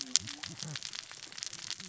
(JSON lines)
{"label": "biophony, cascading saw", "recorder": "SoundTrap 600 or HydroMoth"}